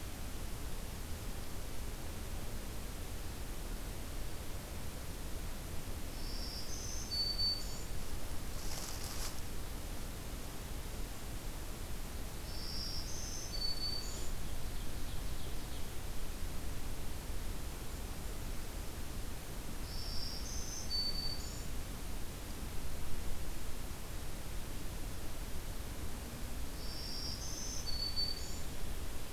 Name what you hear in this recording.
Black-throated Green Warbler, Ovenbird